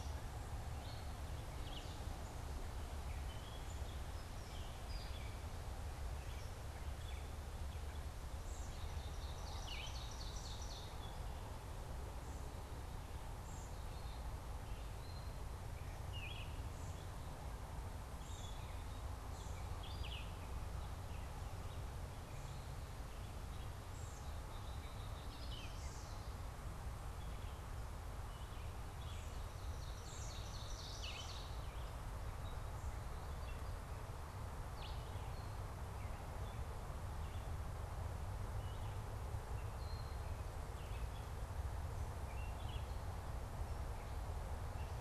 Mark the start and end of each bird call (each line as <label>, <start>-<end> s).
Black-capped Chickadee (Poecile atricapillus), 23.7-25.6 s
Chestnut-sided Warbler (Setophaga pensylvanica), 25.1-26.5 s
Red-eyed Vireo (Vireo olivaceus), 25.1-45.0 s
Ovenbird (Seiurus aurocapilla), 29.2-31.7 s